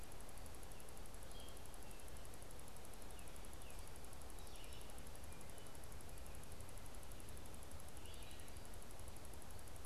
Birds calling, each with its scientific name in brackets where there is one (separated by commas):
Red-eyed Vireo (Vireo olivaceus), Tufted Titmouse (Baeolophus bicolor)